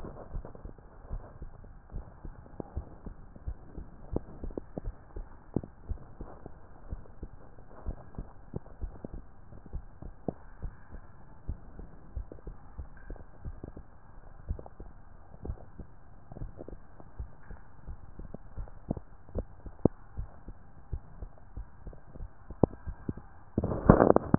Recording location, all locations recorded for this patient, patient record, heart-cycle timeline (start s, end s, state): tricuspid valve (TV)
aortic valve (AV)+pulmonary valve (PV)+tricuspid valve (TV)
#Age: Child
#Sex: Female
#Height: 139.0 cm
#Weight: 57.6 kg
#Pregnancy status: False
#Murmur: Absent
#Murmur locations: nan
#Most audible location: nan
#Systolic murmur timing: nan
#Systolic murmur shape: nan
#Systolic murmur grading: nan
#Systolic murmur pitch: nan
#Systolic murmur quality: nan
#Diastolic murmur timing: nan
#Diastolic murmur shape: nan
#Diastolic murmur grading: nan
#Diastolic murmur pitch: nan
#Diastolic murmur quality: nan
#Outcome: Abnormal
#Campaign: 2015 screening campaign
0.00	6.35	unannotated
6.35	6.88	diastole
6.88	7.04	S1
7.04	7.20	systole
7.20	7.30	S2
7.30	7.82	diastole
7.82	8.00	S1
8.00	8.18	systole
8.18	8.30	S2
8.30	8.80	diastole
8.80	8.94	S1
8.94	9.12	systole
9.12	9.24	S2
9.24	9.72	diastole
9.72	9.88	S1
9.88	10.01	systole
10.01	10.14	S2
10.14	10.62	diastole
10.62	10.76	S1
10.76	10.92	systole
10.92	11.00	S2
11.00	11.44	diastole
11.44	11.60	S1
11.60	11.78	systole
11.78	11.90	S2
11.90	12.14	diastole
12.14	12.27	S1
12.27	12.46	systole
12.46	12.58	S2
12.58	12.76	diastole
12.76	12.90	S1
12.90	13.06	systole
13.06	13.18	S2
13.18	13.44	diastole
13.44	13.58	S1
13.58	13.76	systole
13.76	13.86	S2
13.86	14.44	diastole
14.44	14.58	S1
14.58	14.80	systole
14.80	14.92	S2
14.92	15.44	diastole
15.44	15.60	S1
15.60	15.78	systole
15.78	15.88	S2
15.88	16.35	diastole
16.35	16.52	S1
16.52	16.66	systole
16.66	16.82	S2
16.82	17.15	diastole
17.15	17.32	S1
17.32	17.46	systole
17.46	17.60	S2
17.60	18.15	diastole
18.15	18.34	S1
18.34	18.54	systole
18.54	18.70	S2
18.70	19.32	diastole
19.32	24.38	unannotated